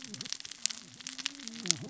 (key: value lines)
label: biophony, cascading saw
recorder: SoundTrap 600 or HydroMoth